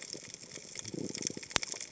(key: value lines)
label: biophony
recorder: HydroMoth